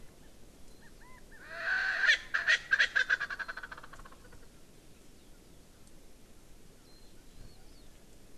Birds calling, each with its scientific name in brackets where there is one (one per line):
Erckel's Francolin (Pternistis erckelii)
Warbling White-eye (Zosterops japonicus)